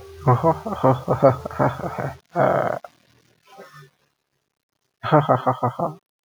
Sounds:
Laughter